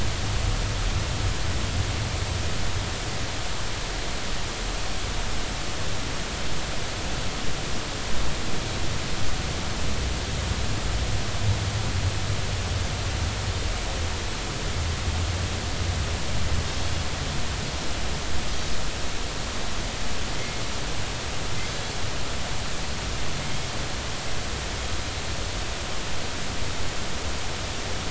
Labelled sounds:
16.8	17.0	Pacific white-sided dolphin, 3.3 to 3.4 kHz
21.7	21.9	Pacific white-sided dolphin, 6.1 to 6.3 kHz
23.4	23.7	Pacific white-sided dolphin, 2.1 to 2.2 kHz

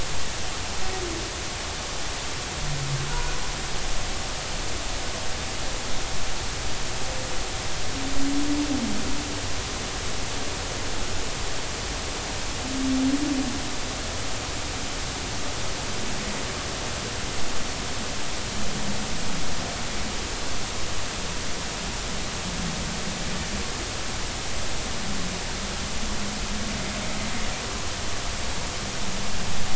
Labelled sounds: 3.1	3.4	humpback whale, 1.4 to 1.5 kHz

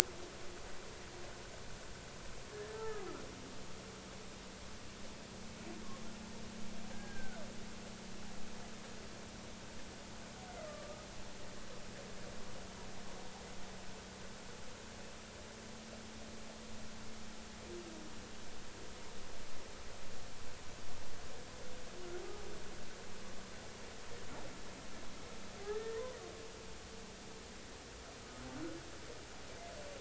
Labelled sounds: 2.5	3.1	humpback whale, 1.1 to 1.8 kHz
6.9	7.4	humpback whale, 1.3 to 1.7 kHz
10.7	11.1	humpback whale, 1.1 to 1.3 kHz
25.6	26.2	humpback whale, 0.90 to 1.9 kHz

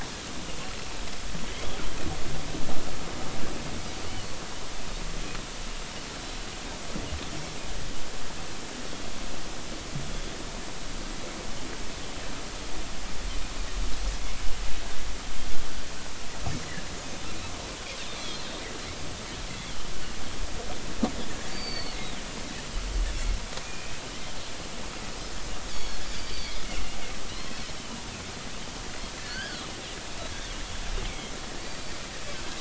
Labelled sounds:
1.5	1.8	Pacific white-sided dolphin, 3.0 to 3.5 kHz
7.3	7.6	Pacific white-sided dolphin, 5.3 to 5.4 kHz
18.2	18.5	Pacific white-sided dolphin, 4.0 to 4.3 kHz
19.5	19.9	Pacific white-sided dolphin, 2.9 to 3.5 kHz
21.5	22.0	Pacific white-sided dolphin, 2.1 to 4.7 kHz
23.6	23.9	Pacific white-sided dolphin, 2.3 to 2.6 kHz
25.7	26.6	Pacific white-sided dolphin, 2.0 to 6.9 kHz
29.2	29.7	Pacific white-sided dolphin, 1.1 to 5.0 kHz

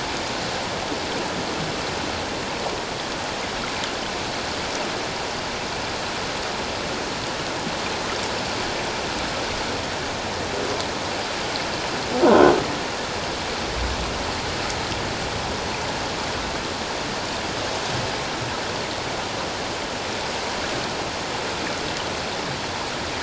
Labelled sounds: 12.2	12.5	croaking sound likely from a nearby submerged object, 0.91 to 1.6 kHz

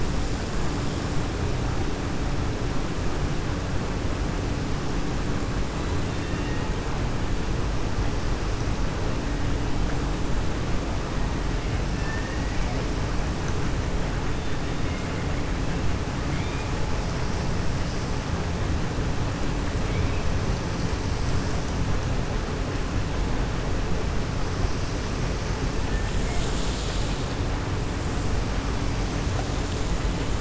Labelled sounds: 6.0	6.6	killer whale, 1.2 to 3.8 kHz
11.9	12.7	killer whale, 0.93 to 2.8 kHz
16.2	16.7	killer whale, 1.4 to 3.7 kHz
19.8	20.2	killer whale, 2.2 to 3.5 kHz

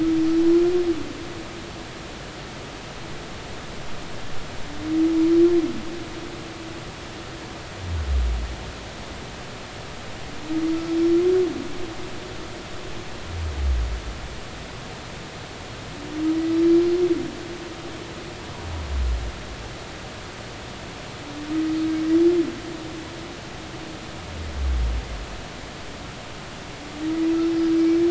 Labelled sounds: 10.9	11.1	humpback whale, 5.3 to 5.5 kHz

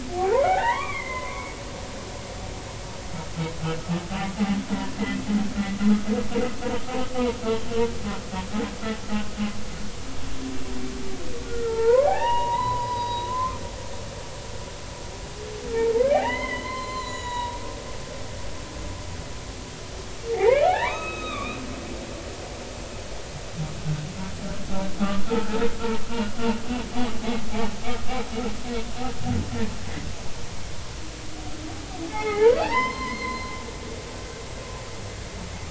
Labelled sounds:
0.1	1.6	humpback whale, 0.80 to 2.5 kHz
11.4	13.6	humpback whale, 0.80 to 5.0 kHz
16.0	17.6	humpback whale, 0.80 to 7.1 kHz
20.3	21.6	humpback whale, 0.80 to 4.0 kHz
25.2	26.3	humpback whale, 0.83 to 2.9 kHz
32.1	33.5	humpback whale, 0.80 to 5.3 kHz

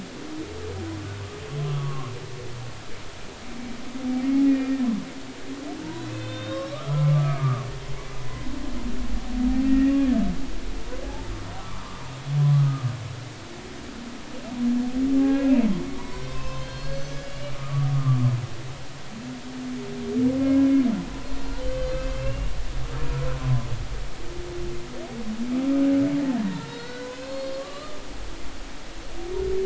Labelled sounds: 1.6	2.1	humpback whale, 1.0 to 1.2 kHz
4.2	4.7	humpback whale, 2.0 to 2.5 kHz
5.9	7.7	humpback whale, 1.0 to 4.2 kHz
9.7	10.0	humpback whale, 1.8 to 2.0 kHz
11.0	11.9	humpback whale, 0.80 to 1.3 kHz
12.6	12.9	humpback whale, 1.2 to 1.3 kHz
15.2	18.2	humpback whale, 0.80 to 5.3 kHz
21.6	22.5	humpback whale, 2.5 to 3.1 kHz
23.4	23.7	humpback whale, 0.99 to 1.1 kHz
26.4	28.0	humpback whale, 0.86 to 4.5 kHz

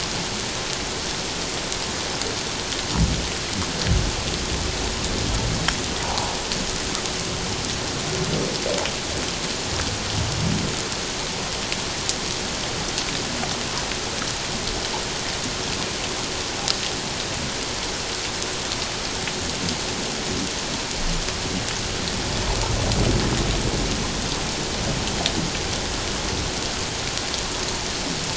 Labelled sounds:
6.0	6.3	humpback whale, 0.78 to 1.2 kHz

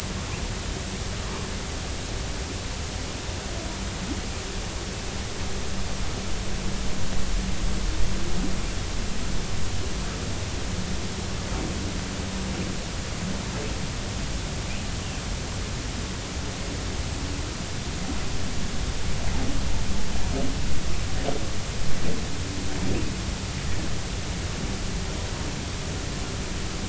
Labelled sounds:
1.2	1.5	humpback whale, 0.96 to 1.2 kHz

